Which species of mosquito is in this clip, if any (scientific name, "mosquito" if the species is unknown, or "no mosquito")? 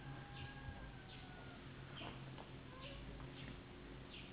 Anopheles gambiae s.s.